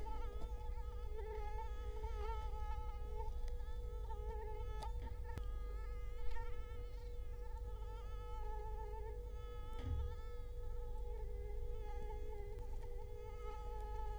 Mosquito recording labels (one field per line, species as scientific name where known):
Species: Culex quinquefasciatus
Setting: cup